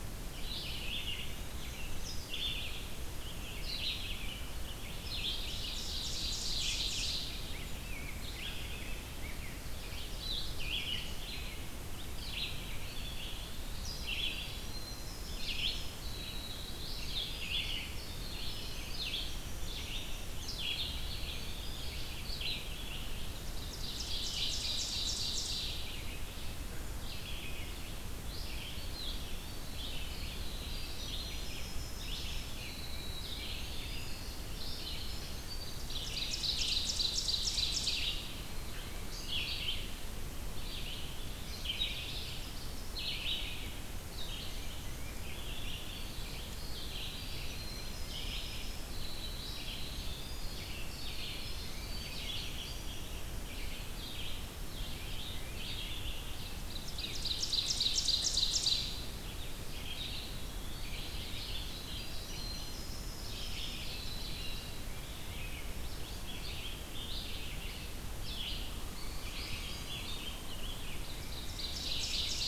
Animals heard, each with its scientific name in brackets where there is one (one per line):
Red-eyed Vireo (Vireo olivaceus)
Rose-breasted Grosbeak (Pheucticus ludovicianus)
Winter Wren (Troglodytes hiemalis)
Ovenbird (Seiurus aurocapilla)
Eastern Wood-Pewee (Contopus virens)